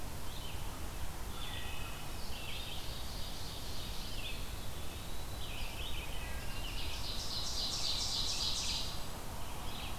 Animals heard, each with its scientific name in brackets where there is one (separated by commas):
American Robin (Turdus migratorius), Ovenbird (Seiurus aurocapilla), Wood Thrush (Hylocichla mustelina), Eastern Wood-Pewee (Contopus virens)